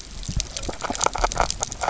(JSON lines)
{"label": "biophony, grazing", "recorder": "SoundTrap 300"}